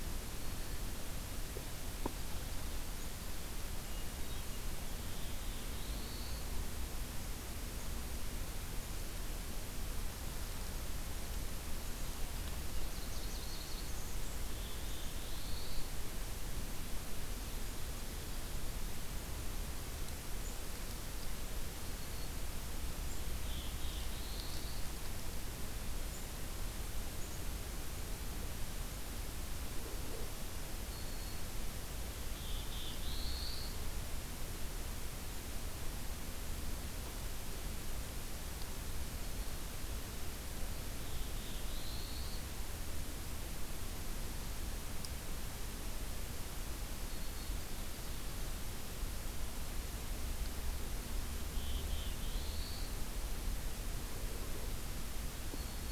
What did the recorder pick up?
Hermit Thrush, Black-throated Blue Warbler, Nashville Warbler, Black-throated Green Warbler